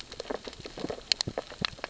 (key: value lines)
label: biophony, sea urchins (Echinidae)
recorder: SoundTrap 600 or HydroMoth